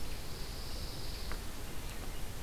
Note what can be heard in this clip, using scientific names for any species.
Setophaga pinus